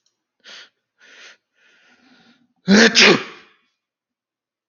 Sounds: Sneeze